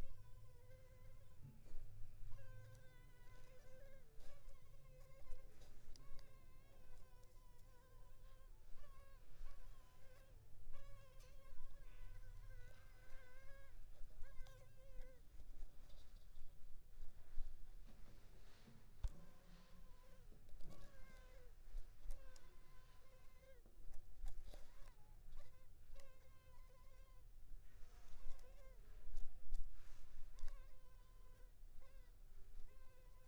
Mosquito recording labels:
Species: Culex pipiens complex; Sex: female; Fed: unfed; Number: one; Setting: cup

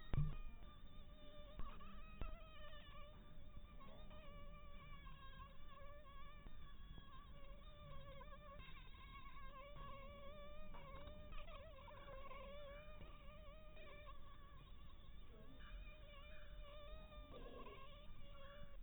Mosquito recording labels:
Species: mosquito; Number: one; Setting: cup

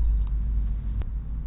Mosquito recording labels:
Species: no mosquito; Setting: cup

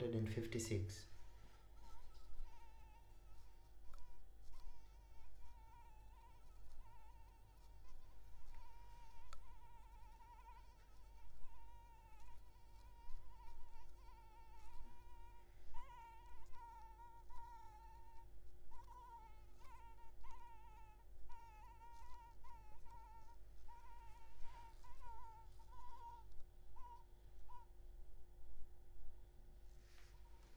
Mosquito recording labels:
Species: Anopheles maculipalpis; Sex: female; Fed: blood-fed; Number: one; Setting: cup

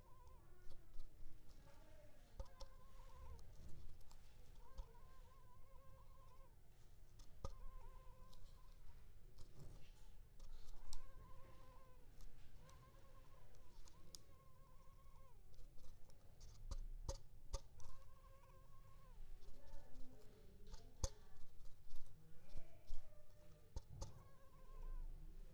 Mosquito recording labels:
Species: Culex pipiens complex; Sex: female; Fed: unfed; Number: one; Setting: cup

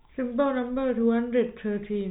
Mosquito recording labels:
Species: no mosquito; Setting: cup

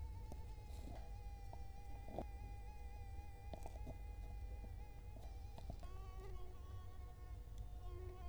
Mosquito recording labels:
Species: Culex quinquefasciatus; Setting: cup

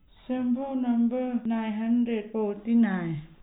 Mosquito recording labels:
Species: no mosquito; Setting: cup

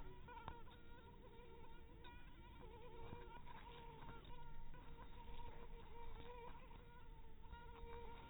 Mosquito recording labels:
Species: mosquito; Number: one; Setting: cup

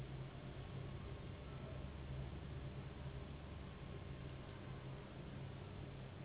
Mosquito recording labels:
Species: Anopheles gambiae s.s.; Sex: female; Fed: unfed; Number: one; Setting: insect culture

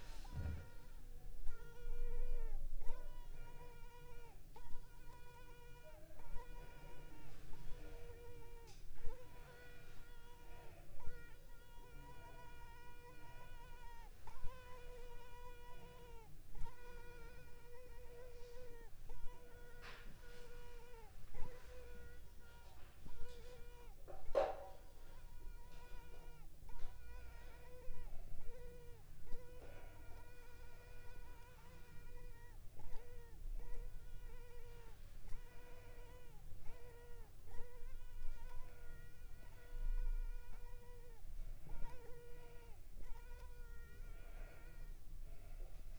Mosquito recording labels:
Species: Culex pipiens complex; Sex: female; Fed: unfed; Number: one; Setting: cup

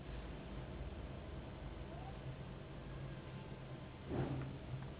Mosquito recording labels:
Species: Anopheles gambiae s.s.; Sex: female; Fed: unfed; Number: one; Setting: insect culture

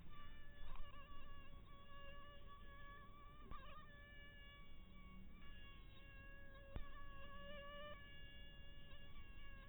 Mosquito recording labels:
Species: mosquito; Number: one; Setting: cup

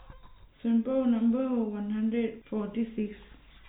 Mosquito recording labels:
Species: no mosquito; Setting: cup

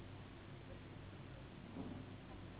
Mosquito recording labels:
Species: Anopheles gambiae s.s.; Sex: female; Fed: unfed; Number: one; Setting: insect culture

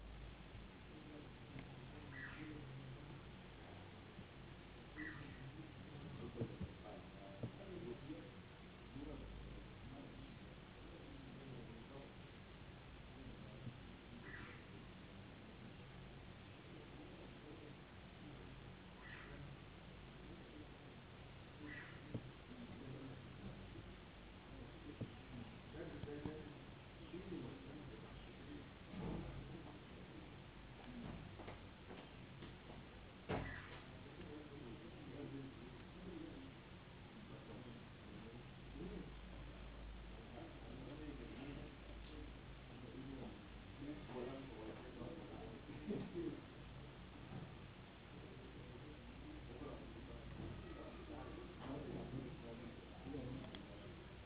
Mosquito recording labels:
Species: no mosquito; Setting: insect culture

